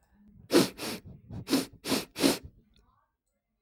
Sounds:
Sniff